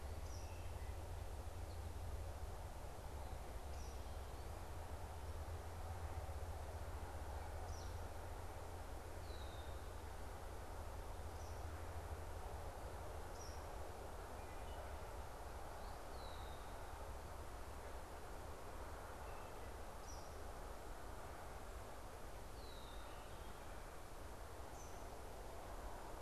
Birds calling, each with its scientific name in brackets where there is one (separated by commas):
Eastern Kingbird (Tyrannus tyrannus), Wood Thrush (Hylocichla mustelina), Red-winged Blackbird (Agelaius phoeniceus)